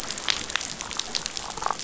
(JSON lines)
{"label": "biophony, damselfish", "recorder": "SoundTrap 500"}